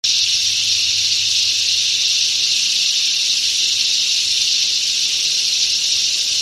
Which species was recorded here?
Thopha saccata